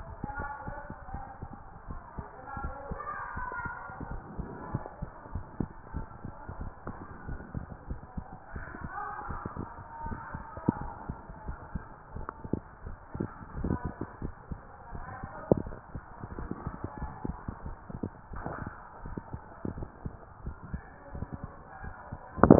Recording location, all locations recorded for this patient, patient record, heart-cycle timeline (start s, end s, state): mitral valve (MV)
aortic valve (AV)+pulmonary valve (PV)+tricuspid valve (TV)+mitral valve (MV)
#Age: Child
#Sex: Female
#Height: 133.0 cm
#Weight: 39.4 kg
#Pregnancy status: False
#Murmur: Absent
#Murmur locations: nan
#Most audible location: nan
#Systolic murmur timing: nan
#Systolic murmur shape: nan
#Systolic murmur grading: nan
#Systolic murmur pitch: nan
#Systolic murmur quality: nan
#Diastolic murmur timing: nan
#Diastolic murmur shape: nan
#Diastolic murmur grading: nan
#Diastolic murmur pitch: nan
#Diastolic murmur quality: nan
#Outcome: Normal
#Campaign: 2015 screening campaign
0.00	0.10	S2
0.10	0.38	diastole
0.38	0.50	S1
0.50	0.66	systole
0.66	0.82	S2
0.82	1.12	diastole
1.12	1.24	S1
1.24	1.40	systole
1.40	1.52	S2
1.52	1.86	diastole
1.86	2.00	S1
2.00	2.14	systole
2.14	2.26	S2
2.26	2.56	diastole
2.56	2.74	S1
2.74	2.88	systole
2.88	3.02	S2
3.02	3.36	diastole
3.36	3.48	S1
3.48	3.64	systole
3.64	3.72	S2
3.72	4.02	diastole
4.02	4.20	S1
4.20	4.36	systole
4.36	4.50	S2
4.50	4.72	diastole
4.72	4.84	S1
4.84	4.98	systole
4.98	5.10	S2
5.10	5.34	diastole
5.34	5.46	S1
5.46	5.58	systole
5.58	5.70	S2
5.70	5.92	diastole
5.92	6.06	S1
6.06	6.20	systole
6.20	6.30	S2
6.30	6.56	diastole
6.56	6.72	S1
6.72	6.86	systole
6.86	6.96	S2
6.96	7.26	diastole
7.26	7.38	S1
7.38	7.54	systole
7.54	7.64	S2
7.64	7.86	diastole
7.86	8.00	S1
8.00	8.14	systole
8.14	8.24	S2
8.24	8.54	diastole
8.54	8.68	S1
8.68	8.82	systole
8.82	8.92	S2
8.92	9.26	diastole
9.26	9.42	S1
9.42	9.58	systole
9.58	9.72	S2
9.72	10.04	diastole
10.04	10.20	S1
10.20	10.34	systole
10.34	10.46	S2
10.46	10.76	diastole
10.76	10.92	S1
10.92	11.08	systole
11.08	11.18	S2
11.18	11.46	diastole
11.46	11.58	S1
11.58	11.74	systole
11.74	11.84	S2
11.84	12.14	diastole
12.14	12.28	S1
12.28	12.50	systole
12.50	12.62	S2
12.62	12.84	diastole
12.84	12.98	S1
12.98	13.14	systole
13.14	13.28	S2
13.28	13.56	diastole